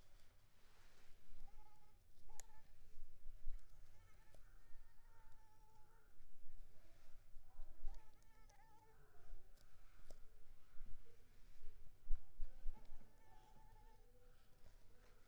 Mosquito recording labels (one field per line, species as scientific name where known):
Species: Anopheles arabiensis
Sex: female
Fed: unfed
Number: one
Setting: cup